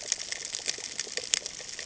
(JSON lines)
{"label": "ambient", "recorder": "HydroMoth"}